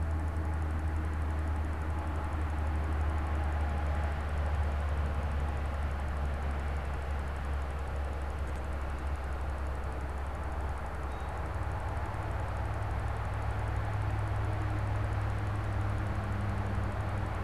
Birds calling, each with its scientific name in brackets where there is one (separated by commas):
American Robin (Turdus migratorius)